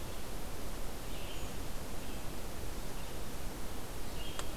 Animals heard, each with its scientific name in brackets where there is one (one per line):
Red-eyed Vireo (Vireo olivaceus)